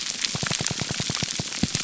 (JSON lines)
{"label": "biophony, pulse", "recorder": "SoundTrap 300"}